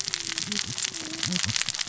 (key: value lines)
label: biophony, cascading saw
recorder: SoundTrap 600 or HydroMoth